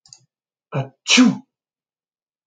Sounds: Sneeze